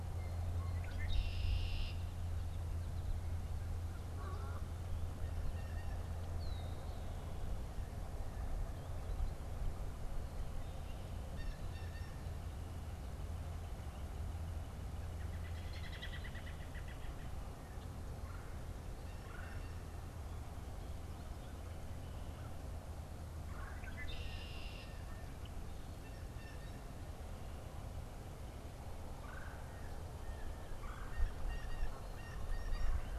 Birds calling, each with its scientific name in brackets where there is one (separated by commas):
American Robin (Turdus migratorius), Canada Goose (Branta canadensis), Red-bellied Woodpecker (Melanerpes carolinus), Red-winged Blackbird (Agelaius phoeniceus), Blue Jay (Cyanocitta cristata)